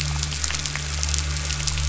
{"label": "anthrophony, boat engine", "recorder": "SoundTrap 500"}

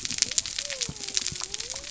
{"label": "biophony", "recorder": "SoundTrap 300"}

